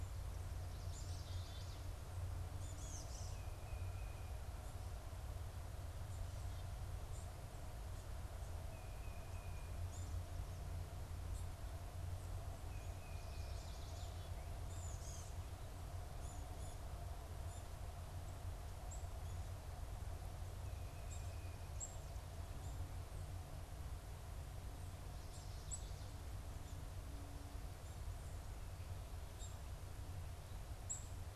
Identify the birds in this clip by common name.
Black-capped Chickadee, Tufted Titmouse, Chestnut-sided Warbler